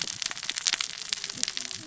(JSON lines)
{"label": "biophony, cascading saw", "recorder": "SoundTrap 600 or HydroMoth"}